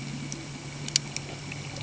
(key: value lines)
label: anthrophony, boat engine
recorder: HydroMoth